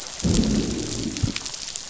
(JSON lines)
{"label": "biophony, growl", "recorder": "SoundTrap 500"}